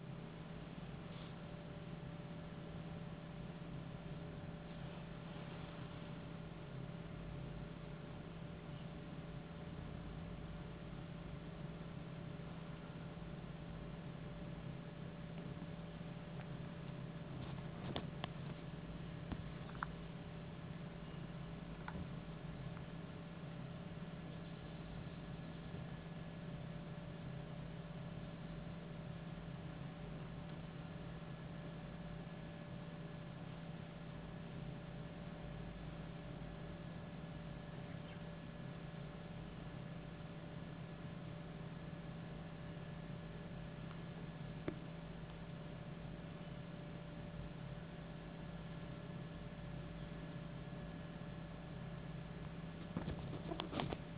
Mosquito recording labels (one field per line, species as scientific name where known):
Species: no mosquito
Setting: insect culture